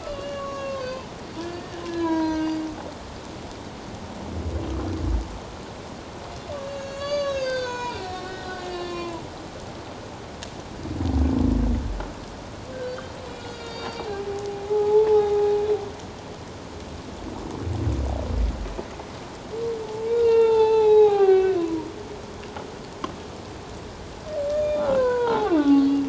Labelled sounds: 1.4	2.6	humpback whale, 0.88 to 4.9 kHz
6.6	9.2	humpback whale, 0.88 to 7.0 kHz
12.7	15.5	humpback whale, 0.78 to 7.3 kHz
19.8	21.9	humpback whale, 0.78 to 4.2 kHz
24.5	26.0	humpback whale, 0.78 to 6.7 kHz

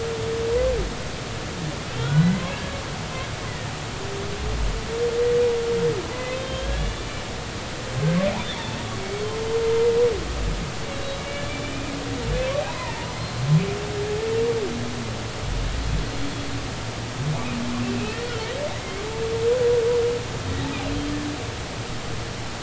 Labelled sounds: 1.9	2.5	humpback whale, 1.3 to 3.4 kHz
6.1	7.0	humpback whale, 1.5 to 3.8 kHz
9.0	9.2	humpback whale, 2.2 to 2.3 kHz
10.9	11.9	humpback whale, 2.2 to 4.1 kHz
12.6	13.4	humpback whale, 0.80 to 4.3 kHz
18.0	19.0	humpback whale, 1.9 to 2.9 kHz

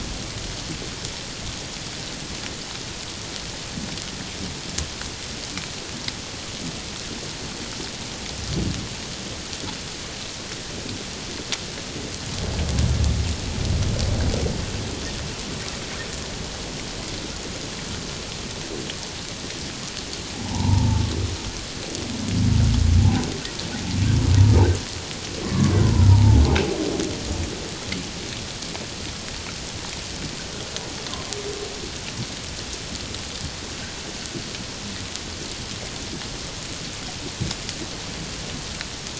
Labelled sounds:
20.3	21.0	humpback whale, 0.78 to 1.0 kHz
25.4	26.4	humpback whale, 0.81 to 1.4 kHz

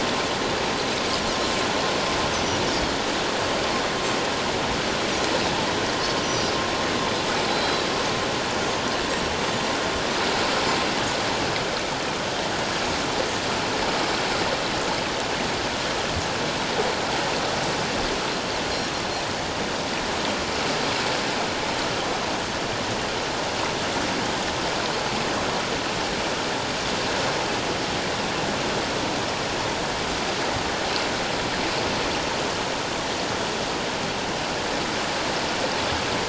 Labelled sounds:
2.3	2.6	Pacific white-sided dolphin, 5.7 to 6.3 kHz
6.2	6.5	Pacific white-sided dolphin, 5.6 to 6.0 kHz
7.5	7.9	Pacific white-sided dolphin, 3.8 to 4.1 kHz

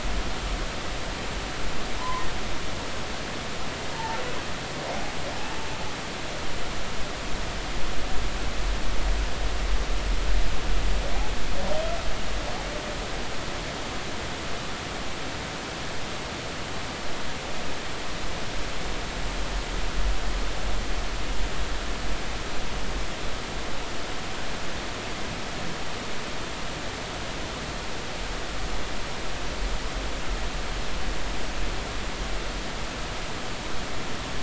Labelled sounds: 2.0	2.3	humpback whale, 0.93 to 1.1 kHz
3.9	4.2	humpback whale, 0.83 to 0.96 kHz

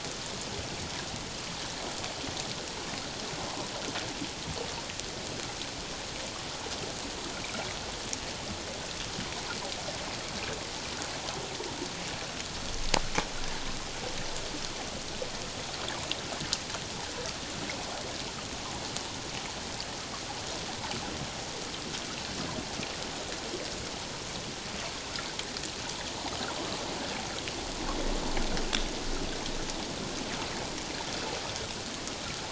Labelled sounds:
3.4	3.6	water noise, 0.94 to 1.1 kHz

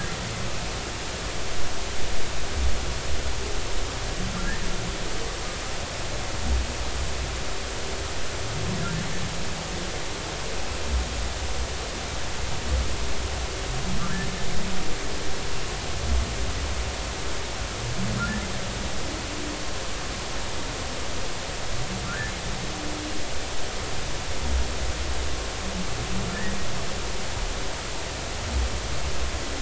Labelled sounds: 22.0	22.3	humpback whale, 1.3 to 1.8 kHz

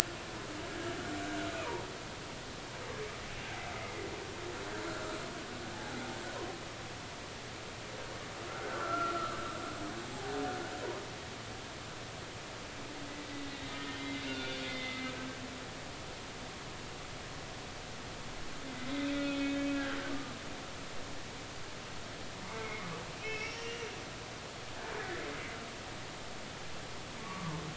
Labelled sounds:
4.9	5.2	humpback whale, 1.2 to 1.7 kHz
8.5	9.4	humpback whale, 1.2 to 1.6 kHz
13.7	15.1	humpback whale, 1.4 to 3.6 kHz
18.7	20.1	humpback whale, 1.4 to 3.7 kHz
22.5	23.9	humpback whale, 2.0 to 3.0 kHz
25.0	25.2	humpback whale, 1.6 to 2.0 kHz
27.2	27.6	humpback whale, 0.93 to 1.2 kHz

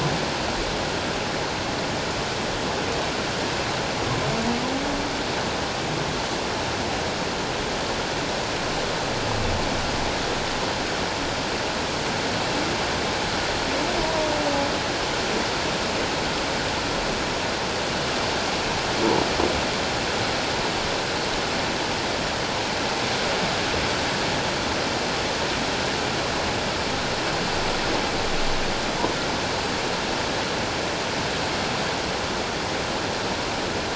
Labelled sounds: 14.0	14.3	humpback whale, 0.91 to 1.0 kHz

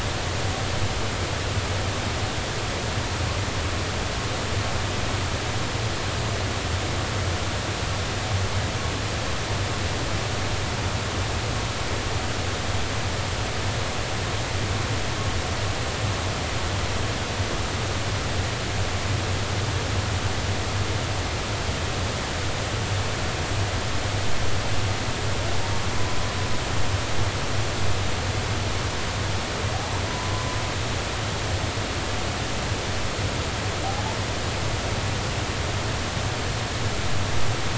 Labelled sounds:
25.9	26.2	humpback whale, 0.96 to 1.1 kHz
30.1	30.5	humpback whale, 0.93 to 1.1 kHz

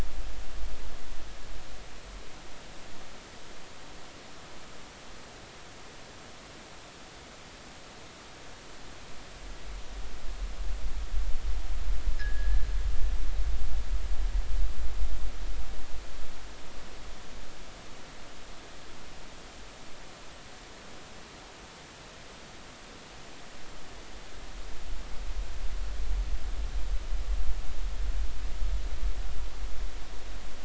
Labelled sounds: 12.1	12.6	fishing gear, 1.5 to 1.8 kHz

